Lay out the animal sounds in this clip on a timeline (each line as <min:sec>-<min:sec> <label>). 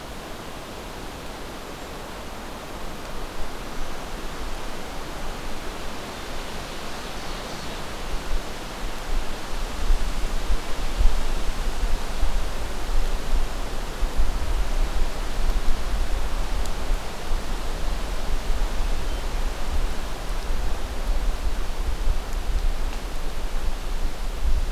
0:06.4-0:07.8 Ovenbird (Seiurus aurocapilla)